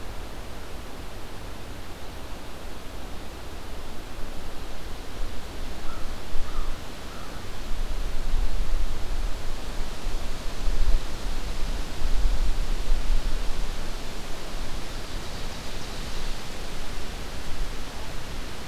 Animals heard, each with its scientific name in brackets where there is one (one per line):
American Crow (Corvus brachyrhynchos)